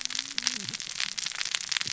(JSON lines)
{"label": "biophony, cascading saw", "recorder": "SoundTrap 600 or HydroMoth"}